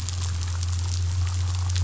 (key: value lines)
label: anthrophony, boat engine
recorder: SoundTrap 500